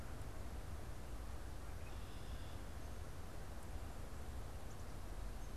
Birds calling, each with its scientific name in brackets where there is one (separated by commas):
Red-winged Blackbird (Agelaius phoeniceus)